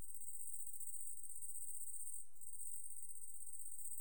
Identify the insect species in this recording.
Tettigonia viridissima